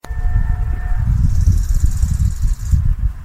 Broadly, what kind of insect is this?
orthopteran